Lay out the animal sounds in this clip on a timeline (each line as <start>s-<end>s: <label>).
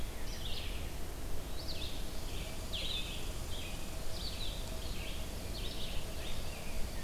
0.0s-7.0s: Blue-headed Vireo (Vireo solitarius)
0.0s-7.0s: Red-eyed Vireo (Vireo olivaceus)
1.9s-7.0s: Red Squirrel (Tamiasciurus hudsonicus)
6.0s-7.0s: Rose-breasted Grosbeak (Pheucticus ludovicianus)